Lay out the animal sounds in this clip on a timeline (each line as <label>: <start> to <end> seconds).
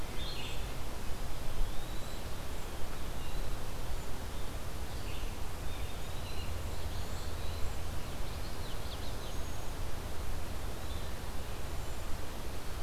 Red-eyed Vireo (Vireo olivaceus): 0.0 to 12.8 seconds
Eastern Wood-Pewee (Contopus virens): 1.4 to 2.3 seconds
Eastern Wood-Pewee (Contopus virens): 5.6 to 6.6 seconds
Common Yellowthroat (Geothlypis trichas): 7.9 to 9.4 seconds
Cedar Waxwing (Bombycilla cedrorum): 11.5 to 12.2 seconds